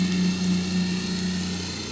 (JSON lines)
{"label": "anthrophony, boat engine", "recorder": "SoundTrap 500"}